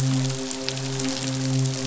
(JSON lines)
{"label": "biophony, midshipman", "recorder": "SoundTrap 500"}